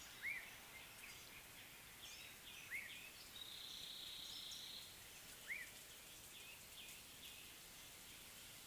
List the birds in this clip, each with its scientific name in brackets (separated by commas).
Black-tailed Oriole (Oriolus percivali)